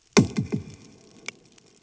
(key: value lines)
label: anthrophony, bomb
recorder: HydroMoth